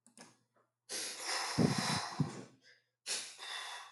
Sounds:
Sniff